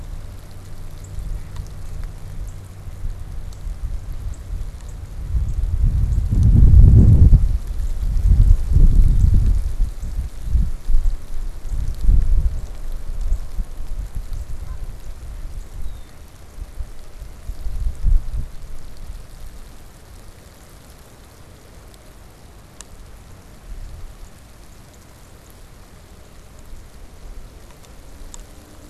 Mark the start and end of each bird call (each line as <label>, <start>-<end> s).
Northern Cardinal (Cardinalis cardinalis), 1.0-1.2 s
Northern Cardinal (Cardinalis cardinalis), 2.4-2.7 s
Northern Cardinal (Cardinalis cardinalis), 4.2-16.0 s
Northern Cardinal (Cardinalis cardinalis), 24.1-25.8 s